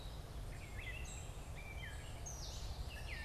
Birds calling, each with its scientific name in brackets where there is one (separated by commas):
Gray Catbird (Dumetella carolinensis), Common Yellowthroat (Geothlypis trichas)